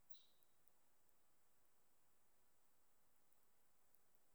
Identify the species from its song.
Helicocercus triguttatus